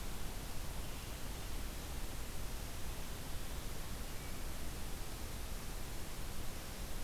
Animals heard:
forest ambience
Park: Marsh-Billings-Rockefeller National Historical Park